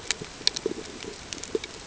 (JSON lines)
{"label": "ambient", "recorder": "HydroMoth"}